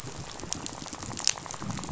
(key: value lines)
label: biophony, rattle
recorder: SoundTrap 500